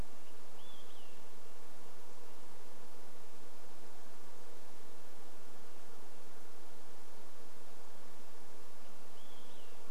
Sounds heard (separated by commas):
insect buzz, Red-breasted Nuthatch song, Olive-sided Flycatcher song